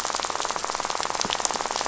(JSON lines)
{"label": "biophony, rattle", "recorder": "SoundTrap 500"}